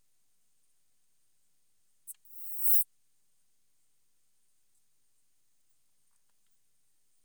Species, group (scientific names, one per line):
Poecilimon artedentatus
Orthoptera